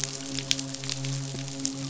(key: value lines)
label: biophony, midshipman
recorder: SoundTrap 500